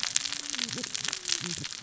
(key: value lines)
label: biophony, cascading saw
recorder: SoundTrap 600 or HydroMoth